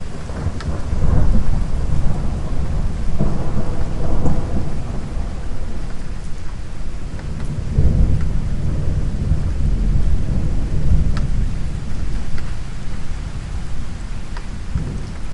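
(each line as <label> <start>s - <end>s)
Rolling thunder at a low to moderate tone in an irregular pattern with soft rain falling steadily. 0.0s - 15.3s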